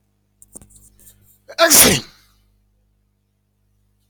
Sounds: Sneeze